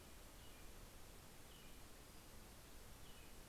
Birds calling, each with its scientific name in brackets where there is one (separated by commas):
American Robin (Turdus migratorius)